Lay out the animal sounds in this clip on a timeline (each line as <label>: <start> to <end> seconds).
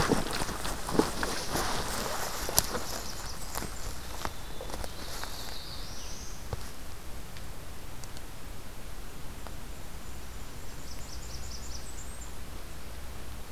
Blackburnian Warbler (Setophaga fusca): 2.0 to 4.1 seconds
Black-throated Blue Warbler (Setophaga caerulescens): 4.8 to 6.5 seconds
Golden-crowned Kinglet (Regulus satrapa): 8.8 to 11.4 seconds
Blackburnian Warbler (Setophaga fusca): 10.6 to 12.4 seconds